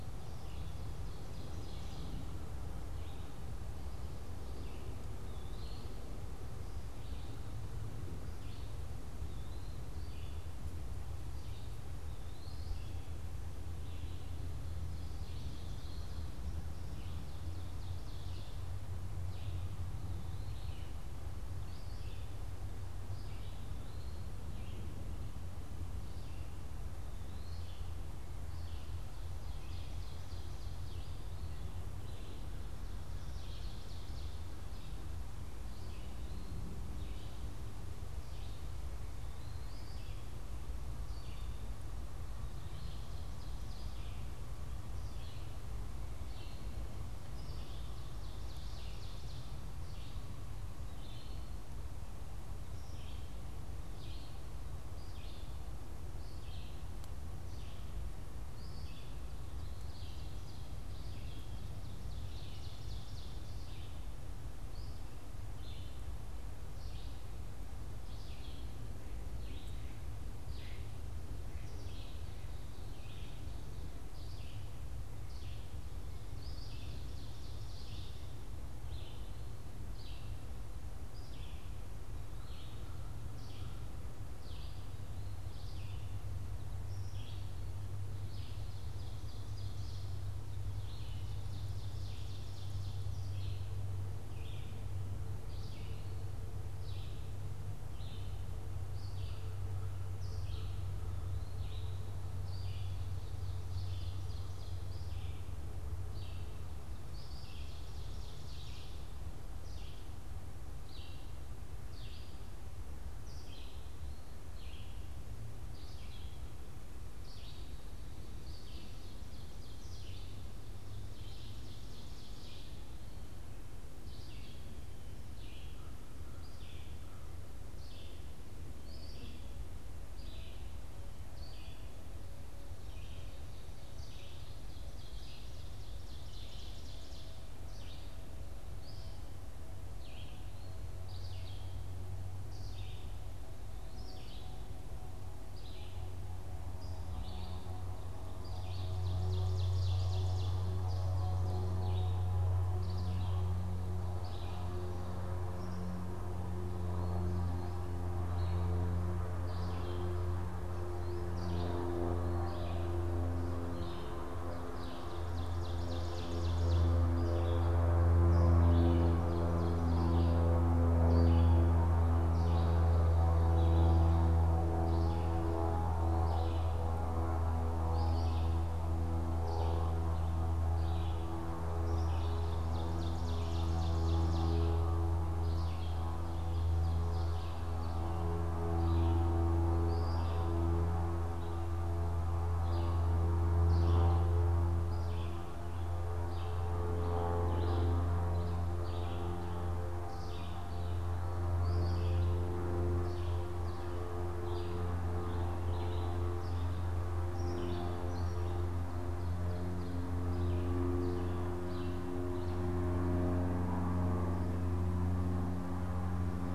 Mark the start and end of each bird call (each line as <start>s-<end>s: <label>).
0.0s-2.6s: Ovenbird (Seiurus aurocapilla)
0.0s-27.8s: Eastern Wood-Pewee (Contopus virens)
0.0s-30.0s: Red-eyed Vireo (Vireo olivaceus)
14.9s-18.8s: Ovenbird (Seiurus aurocapilla)
29.1s-31.4s: Ovenbird (Seiurus aurocapilla)
31.8s-86.4s: Red-eyed Vireo (Vireo olivaceus)
32.8s-34.6s: Ovenbird (Seiurus aurocapilla)
35.5s-40.4s: Eastern Wood-Pewee (Contopus virens)
42.3s-44.2s: Ovenbird (Seiurus aurocapilla)
47.1s-49.6s: Ovenbird (Seiurus aurocapilla)
59.3s-63.9s: Ovenbird (Seiurus aurocapilla)
76.2s-78.3s: Ovenbird (Seiurus aurocapilla)
86.8s-216.5s: Red-eyed Vireo (Vireo olivaceus)
87.8s-93.7s: Ovenbird (Seiurus aurocapilla)
103.2s-109.1s: Ovenbird (Seiurus aurocapilla)
118.3s-123.0s: Ovenbird (Seiurus aurocapilla)
133.7s-137.8s: Ovenbird (Seiurus aurocapilla)
148.0s-151.9s: Ovenbird (Seiurus aurocapilla)
164.1s-167.1s: Ovenbird (Seiurus aurocapilla)
181.6s-184.8s: Ovenbird (Seiurus aurocapilla)
186.1s-188.3s: Ovenbird (Seiurus aurocapilla)